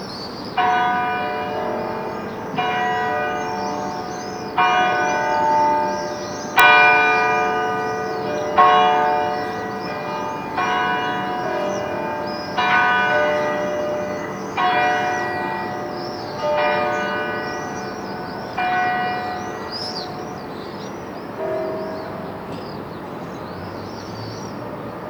Are there birds in the background?
yes